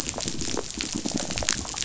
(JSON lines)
{"label": "biophony", "recorder": "SoundTrap 500"}